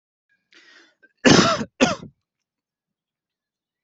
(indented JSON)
{
  "expert_labels": [
    {
      "quality": "good",
      "cough_type": "dry",
      "dyspnea": false,
      "wheezing": false,
      "stridor": false,
      "choking": false,
      "congestion": false,
      "nothing": true,
      "diagnosis": "COVID-19",
      "severity": "mild"
    }
  ]
}